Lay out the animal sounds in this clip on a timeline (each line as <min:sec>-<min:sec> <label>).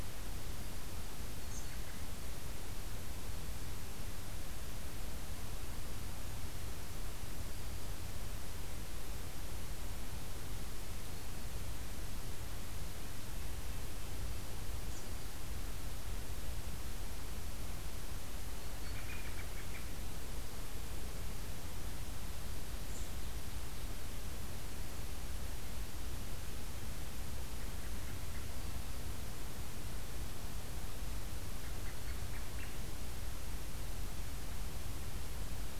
0:01.6-0:02.4 American Robin (Turdus migratorius)
0:18.8-0:19.9 American Robin (Turdus migratorius)
0:27.5-0:28.4 American Robin (Turdus migratorius)
0:31.5-0:32.8 American Robin (Turdus migratorius)